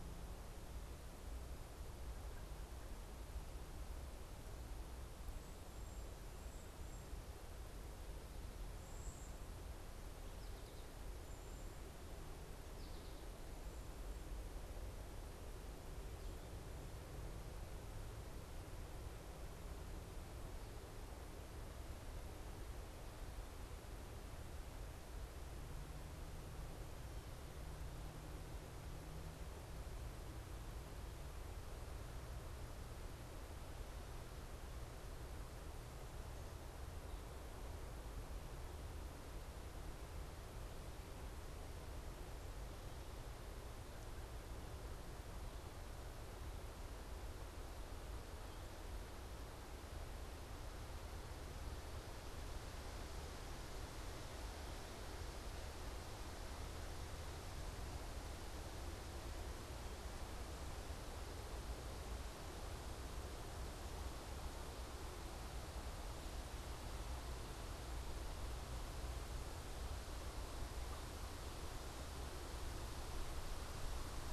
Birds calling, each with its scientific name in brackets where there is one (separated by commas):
Cedar Waxwing (Bombycilla cedrorum)